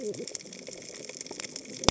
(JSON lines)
{"label": "biophony, cascading saw", "recorder": "HydroMoth"}